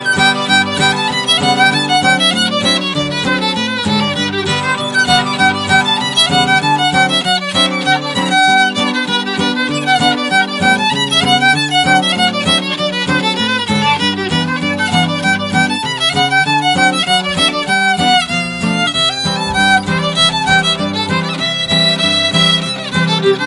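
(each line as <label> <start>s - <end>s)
Traditional Irish fiddle music with violin and guitar playing a soothing song. 0.1s - 23.2s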